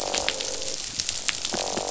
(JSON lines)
{"label": "biophony, croak", "recorder": "SoundTrap 500"}